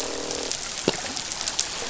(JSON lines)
{"label": "biophony, croak", "recorder": "SoundTrap 500"}